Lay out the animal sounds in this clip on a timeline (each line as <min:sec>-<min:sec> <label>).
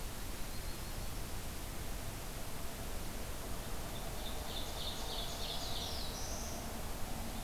0:00.0-0:01.3 Yellow-rumped Warbler (Setophaga coronata)
0:03.9-0:05.9 Ovenbird (Seiurus aurocapilla)
0:05.5-0:06.7 Black-throated Blue Warbler (Setophaga caerulescens)